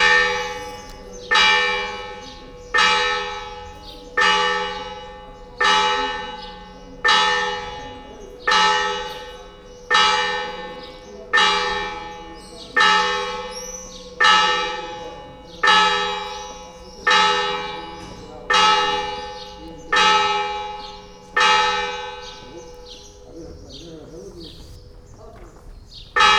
Are birds chirping?
yes